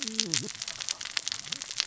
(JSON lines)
{"label": "biophony, cascading saw", "recorder": "SoundTrap 600 or HydroMoth"}